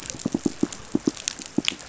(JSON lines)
{"label": "biophony, pulse", "recorder": "SoundTrap 500"}